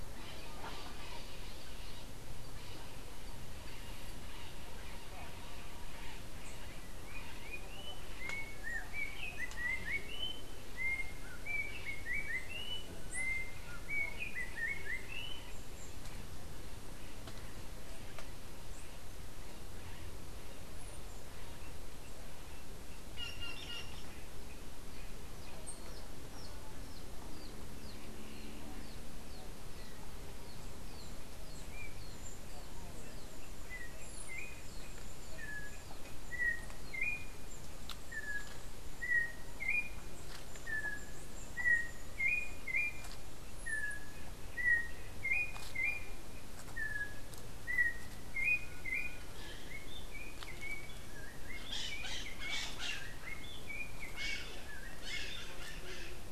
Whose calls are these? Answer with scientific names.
Pionus chalcopterus, Icterus chrysater, Cyanocorax yncas